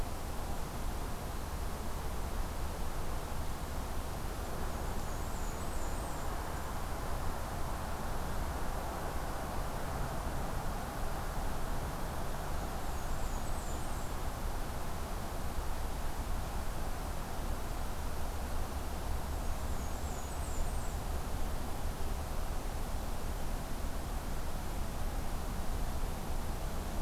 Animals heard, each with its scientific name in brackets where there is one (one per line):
Blackburnian Warbler (Setophaga fusca)